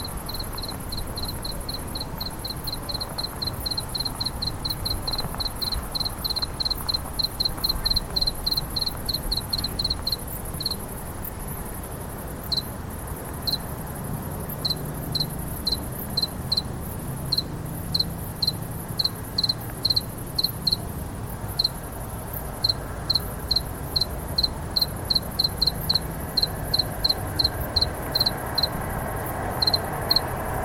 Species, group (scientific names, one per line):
Acheta domesticus
Orthoptera